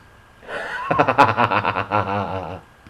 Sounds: Laughter